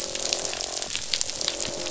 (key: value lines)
label: biophony, croak
recorder: SoundTrap 500